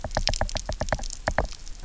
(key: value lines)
label: biophony, knock
recorder: SoundTrap 300